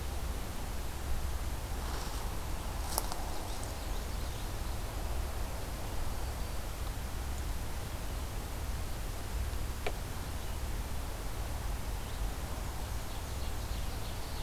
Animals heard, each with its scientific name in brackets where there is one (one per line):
Ovenbird (Seiurus aurocapilla)
Common Yellowthroat (Geothlypis trichas)
Black-and-white Warbler (Mniotilta varia)
Black-throated Green Warbler (Setophaga virens)
Red-eyed Vireo (Vireo olivaceus)